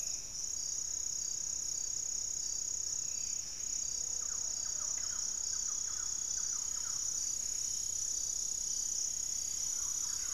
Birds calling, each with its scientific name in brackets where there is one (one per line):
Plumbeous Pigeon (Patagioenas plumbea)
unidentified bird
Gray-fronted Dove (Leptotila rufaxilla)
Thrush-like Wren (Campylorhynchus turdinus)
Buff-breasted Wren (Cantorchilus leucotis)